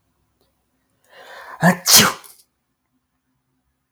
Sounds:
Sneeze